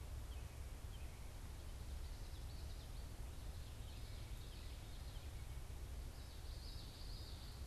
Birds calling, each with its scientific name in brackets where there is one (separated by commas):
unidentified bird, Common Yellowthroat (Geothlypis trichas)